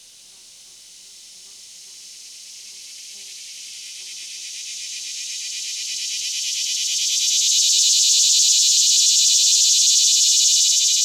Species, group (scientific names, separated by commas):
Neotibicen tibicen, Cicadidae